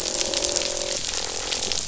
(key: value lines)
label: biophony, croak
recorder: SoundTrap 500